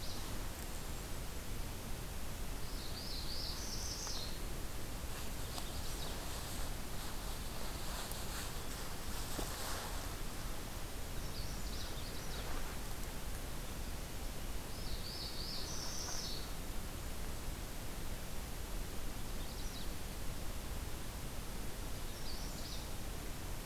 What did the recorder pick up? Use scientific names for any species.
Setophaga magnolia, Regulus satrapa, Setophaga americana